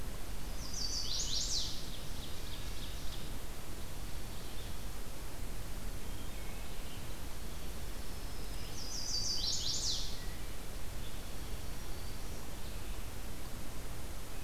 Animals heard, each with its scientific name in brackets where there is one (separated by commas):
Wood Thrush (Hylocichla mustelina), Black-throated Green Warbler (Setophaga virens), Ovenbird (Seiurus aurocapilla), Chestnut-sided Warbler (Setophaga pensylvanica)